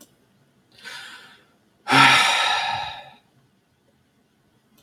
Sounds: Sigh